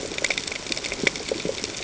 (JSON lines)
{"label": "ambient", "recorder": "HydroMoth"}